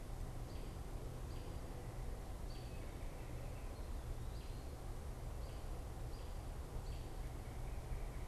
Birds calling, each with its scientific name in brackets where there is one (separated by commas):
American Robin (Turdus migratorius)